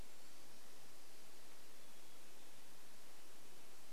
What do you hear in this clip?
Hermit Thrush song